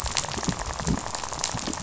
{"label": "biophony, rattle", "recorder": "SoundTrap 500"}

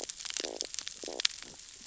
{"label": "biophony, stridulation", "recorder": "SoundTrap 600 or HydroMoth"}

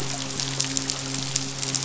{"label": "biophony, midshipman", "recorder": "SoundTrap 500"}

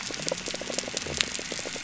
{"label": "biophony", "recorder": "SoundTrap 300"}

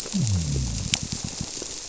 {"label": "biophony", "recorder": "SoundTrap 300"}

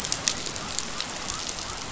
{"label": "biophony", "recorder": "SoundTrap 500"}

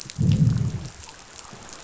{"label": "biophony, growl", "recorder": "SoundTrap 500"}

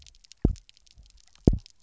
{"label": "biophony, double pulse", "recorder": "SoundTrap 300"}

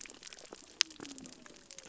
{"label": "biophony", "recorder": "SoundTrap 300"}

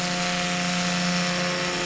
{"label": "anthrophony, boat engine", "recorder": "SoundTrap 500"}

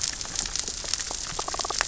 {"label": "biophony, damselfish", "recorder": "SoundTrap 600 or HydroMoth"}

